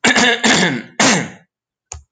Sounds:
Throat clearing